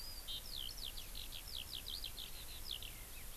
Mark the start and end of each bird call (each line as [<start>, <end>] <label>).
[0.00, 3.36] Eurasian Skylark (Alauda arvensis)